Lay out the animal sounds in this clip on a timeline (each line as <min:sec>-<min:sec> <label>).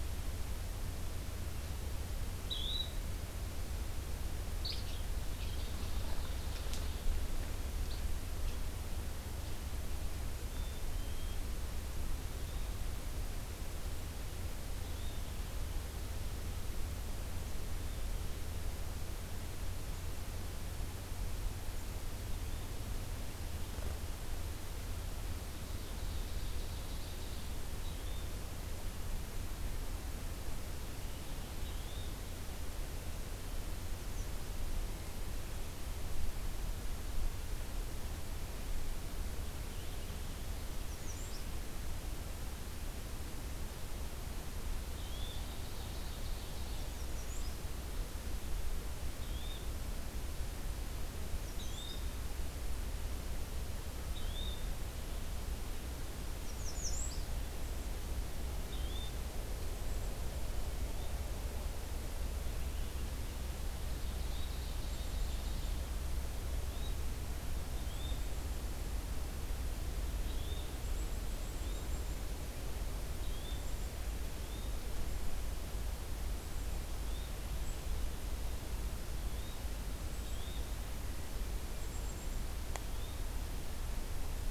0:02.4-0:02.9 Yellow-bellied Flycatcher (Empidonax flaviventris)
0:04.5-0:07.0 Yellow-bellied Flycatcher (Empidonax flaviventris)
0:10.4-0:11.4 Black-capped Chickadee (Poecile atricapillus)
0:14.8-0:15.3 Yellow-bellied Flycatcher (Empidonax flaviventris)
0:25.6-0:27.6 Ovenbird (Seiurus aurocapilla)
0:27.8-0:28.3 Yellow-bellied Flycatcher (Empidonax flaviventris)
0:31.6-0:32.2 Yellow-bellied Flycatcher (Empidonax flaviventris)
0:40.6-0:41.5 American Redstart (Setophaga ruticilla)
0:44.8-0:45.5 Yellow-bellied Flycatcher (Empidonax flaviventris)
0:45.2-0:46.9 Ovenbird (Seiurus aurocapilla)
0:46.6-0:47.6 American Redstart (Setophaga ruticilla)
0:49.2-0:49.7 Yellow-bellied Flycatcher (Empidonax flaviventris)
0:51.4-0:52.0 American Redstart (Setophaga ruticilla)
0:51.5-0:52.2 Yellow-bellied Flycatcher (Empidonax flaviventris)
0:54.1-0:54.7 Yellow-bellied Flycatcher (Empidonax flaviventris)
0:56.3-0:57.4 American Redstart (Setophaga ruticilla)
0:58.6-0:59.2 Yellow-bellied Flycatcher (Empidonax flaviventris)
1:04.0-1:05.9 Ovenbird (Seiurus aurocapilla)
1:04.2-1:04.5 Yellow-bellied Flycatcher (Empidonax flaviventris)
1:04.8-1:06.0 Black-capped Chickadee (Poecile atricapillus)
1:06.5-1:07.0 Yellow-bellied Flycatcher (Empidonax flaviventris)
1:07.7-1:08.3 Yellow-bellied Flycatcher (Empidonax flaviventris)
1:07.9-1:09.0 Black-capped Chickadee (Poecile atricapillus)
1:10.1-1:10.7 Yellow-bellied Flycatcher (Empidonax flaviventris)
1:10.8-1:12.3 Black-capped Chickadee (Poecile atricapillus)
1:11.5-1:12.0 Yellow-bellied Flycatcher (Empidonax flaviventris)
1:13.2-1:13.7 Yellow-bellied Flycatcher (Empidonax flaviventris)
1:13.4-1:14.2 Black-capped Chickadee (Poecile atricapillus)
1:14.3-1:14.8 Yellow-bellied Flycatcher (Empidonax flaviventris)
1:16.8-1:17.3 Yellow-bellied Flycatcher (Empidonax flaviventris)
1:19.1-1:19.6 Yellow-bellied Flycatcher (Empidonax flaviventris)
1:20.1-1:20.7 Yellow-bellied Flycatcher (Empidonax flaviventris)
1:21.7-1:22.4 Black-capped Chickadee (Poecile atricapillus)
1:22.6-1:23.2 Yellow-bellied Flycatcher (Empidonax flaviventris)